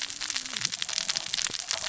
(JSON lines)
{"label": "biophony, cascading saw", "recorder": "SoundTrap 600 or HydroMoth"}